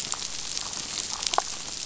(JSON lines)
{"label": "biophony, damselfish", "recorder": "SoundTrap 500"}